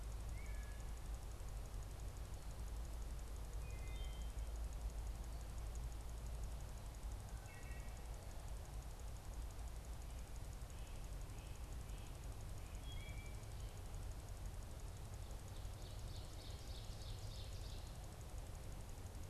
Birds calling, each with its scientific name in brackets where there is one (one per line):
Wood Thrush (Hylocichla mustelina)
Ovenbird (Seiurus aurocapilla)